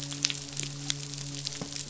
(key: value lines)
label: biophony, midshipman
recorder: SoundTrap 500